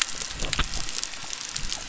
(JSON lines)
{"label": "biophony", "recorder": "SoundTrap 300"}
{"label": "anthrophony, boat engine", "recorder": "SoundTrap 300"}